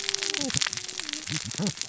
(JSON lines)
{"label": "biophony, cascading saw", "recorder": "SoundTrap 600 or HydroMoth"}